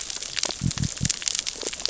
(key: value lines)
label: biophony
recorder: SoundTrap 600 or HydroMoth